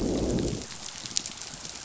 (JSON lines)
{"label": "biophony, growl", "recorder": "SoundTrap 500"}